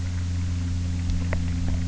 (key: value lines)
label: anthrophony, boat engine
recorder: SoundTrap 300